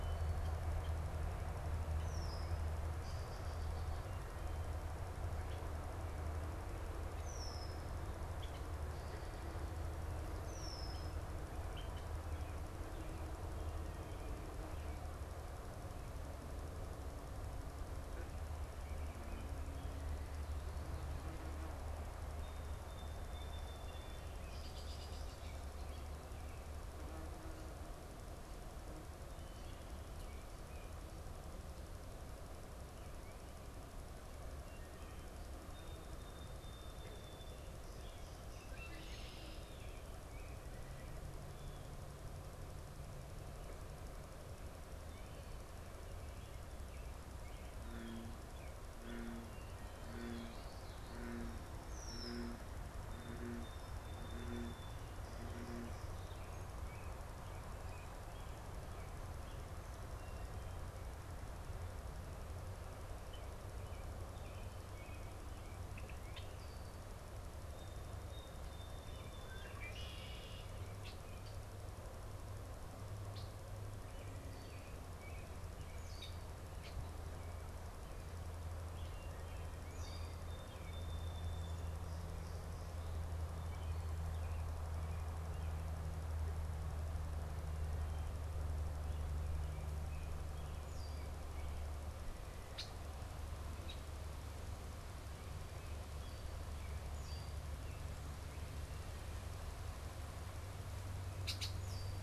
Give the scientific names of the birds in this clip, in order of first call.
Agelaius phoeniceus, unidentified bird, Melospiza melodia, Turdus migratorius, Geothlypis trichas